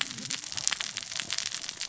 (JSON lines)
{"label": "biophony, cascading saw", "recorder": "SoundTrap 600 or HydroMoth"}